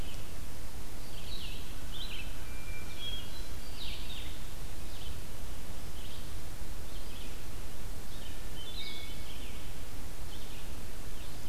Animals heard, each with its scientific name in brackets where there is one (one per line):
Hermit Thrush (Catharus guttatus)
Red-eyed Vireo (Vireo olivaceus)